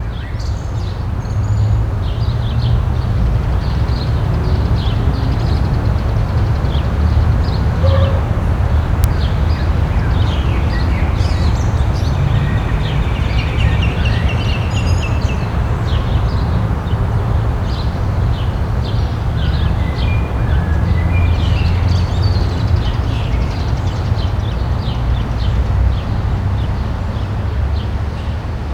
Can traffic be heard?
yes